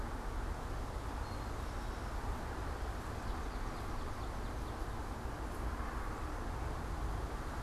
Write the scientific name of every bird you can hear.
Pipilo erythrophthalmus, Melospiza georgiana